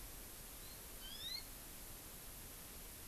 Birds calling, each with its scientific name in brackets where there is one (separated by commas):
Hawaii Amakihi (Chlorodrepanis virens)